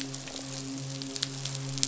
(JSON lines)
{"label": "biophony, midshipman", "recorder": "SoundTrap 500"}